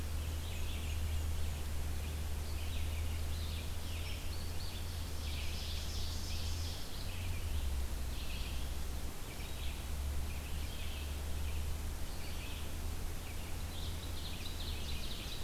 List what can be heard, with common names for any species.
Black-and-white Warbler, Red-eyed Vireo, Indigo Bunting, Ovenbird